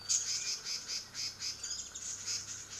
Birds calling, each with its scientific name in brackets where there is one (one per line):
Red-billed Leiothrix (Leiothrix lutea)
Warbling White-eye (Zosterops japonicus)